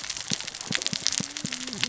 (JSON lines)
{"label": "biophony, cascading saw", "recorder": "SoundTrap 600 or HydroMoth"}